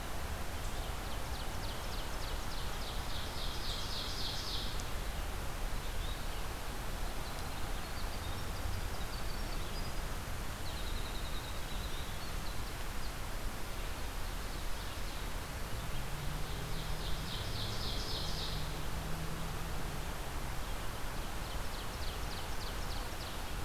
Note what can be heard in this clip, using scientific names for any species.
Seiurus aurocapilla, Empidonax flaviventris, Troglodytes hiemalis